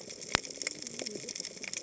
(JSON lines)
{"label": "biophony, cascading saw", "recorder": "HydroMoth"}